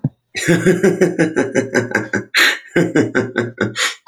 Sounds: Laughter